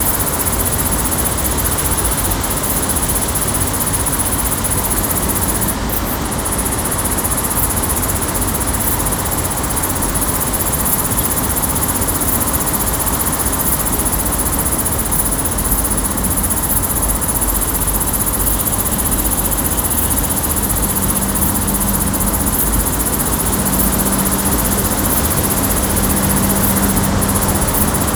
Where at is this?
outside